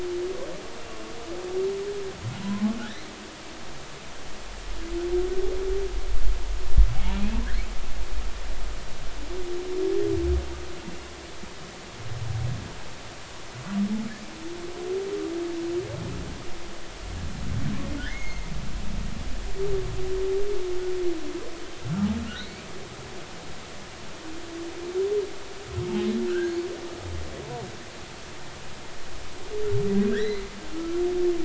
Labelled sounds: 2.4	3.1	humpback whale, 0.96 to 4.3 kHz
7.1	7.4	humpback whale, 2.3 to 2.8 kHz
18.0	18.5	humpback whale, 1.4 to 6.6 kHz
21.8	22.1	humpback whale, 1.1 to 1.4 kHz
22.4	22.7	humpback whale, 2.0 to 2.5 kHz
26.3	26.5	humpback whale, 1.2 to 1.7 kHz
30.1	31.0	humpback whale, 1.3 to 4.2 kHz

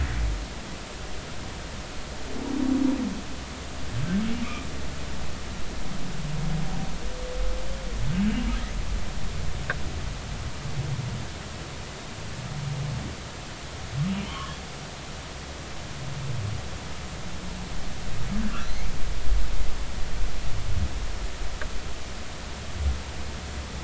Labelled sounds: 14.1	14.5	humpback whale, 1.0 to 3.3 kHz
18.6	18.9	humpback whale, 3.7 to 4.3 kHz

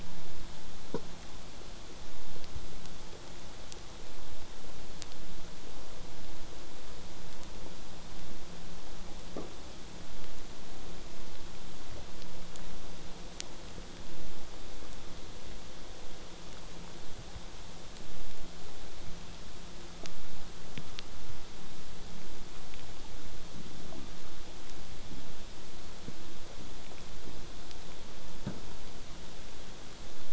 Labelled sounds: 0.0	1.0	vessel noise, 0.05 to 8.0 kHz

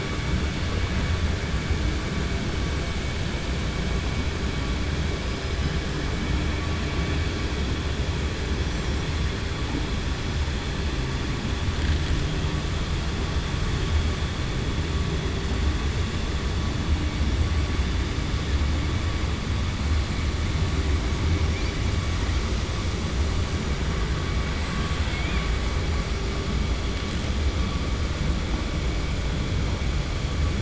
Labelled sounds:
24.6	25.5	killer whale, 1.1 to 4.2 kHz

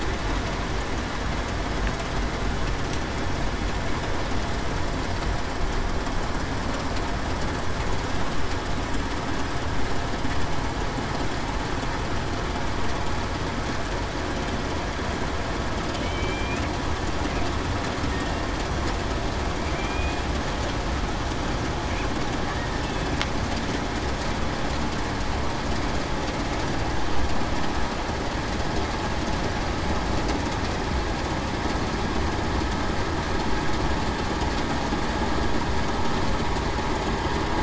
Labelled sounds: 16.0	16.5	killer whale, Bigg's (transient), 2.9 to 3.2 kHz
19.7	20.2	killer whale, Bigg's (transient), 2.2 to 2.5 kHz

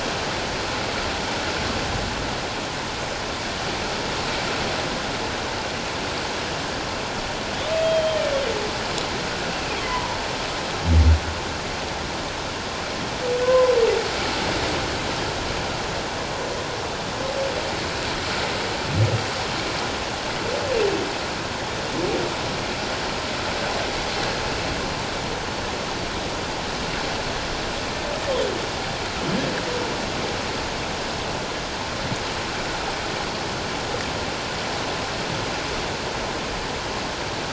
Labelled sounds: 7.8	8.2	humpback whale, 3.1 to 3.3 kHz
9.9	10.2	humpback whale, 0.91 to 1.1 kHz
13.4	13.7	humpback whale, 0.97 to 1.1 kHz

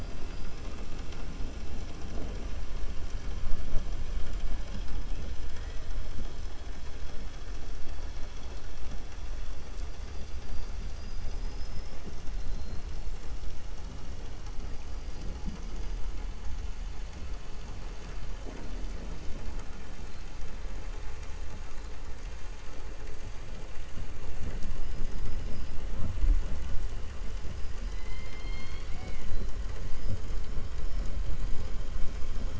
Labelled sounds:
10.8	12.0	killer whale, 4.0 to 5.8 kHz

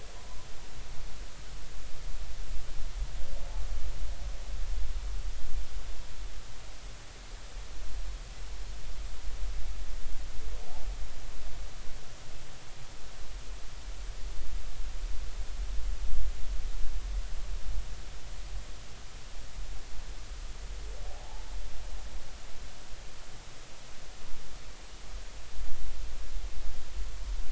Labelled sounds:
21.1	21.5	humpback whale, 0.80 to 0.93 kHz

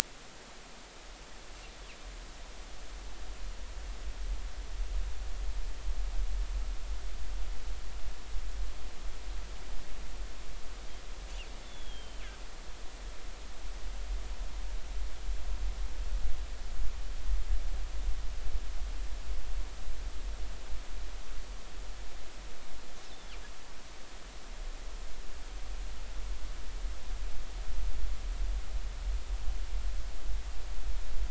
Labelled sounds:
11.6	12.2	killer whale, northern resident, G clan, 3.0 to 3.6 kHz

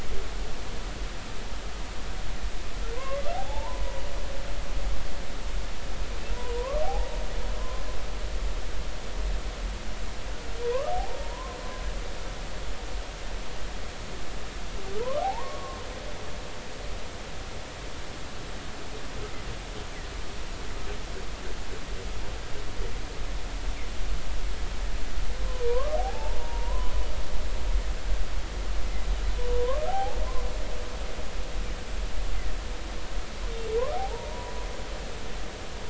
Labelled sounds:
3.0	4.0	humpback whale, 0.80 to 1.2 kHz
6.3	7.8	humpback whale, 0.80 to 1.2 kHz
10.9	11.6	humpback whale, 0.80 to 1.1 kHz
15.0	15.8	humpback whale, 0.80 to 1.4 kHz
25.5	26.9	humpback whale, 0.80 to 1.3 kHz
29.9	30.2	humpback whale, 0.80 to 0.93 kHz
33.9	34.5	humpback whale, 0.80 to 1.0 kHz

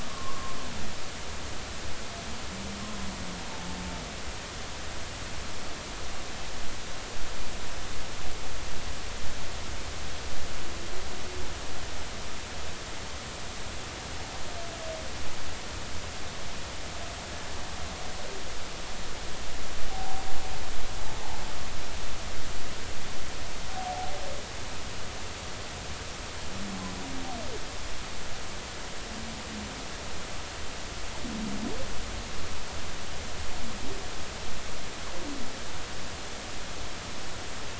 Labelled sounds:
0.1	0.6	humpback whale, 0.96 to 1.2 kHz
19.9	20.2	humpback whale, 0.80 to 0.90 kHz

